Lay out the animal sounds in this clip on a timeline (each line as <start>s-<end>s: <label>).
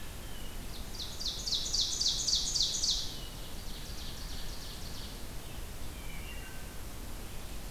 0.6s-5.2s: Ovenbird (Seiurus aurocapilla)
5.8s-6.8s: Wood Thrush (Hylocichla mustelina)